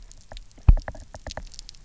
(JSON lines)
{"label": "biophony, knock", "recorder": "SoundTrap 300"}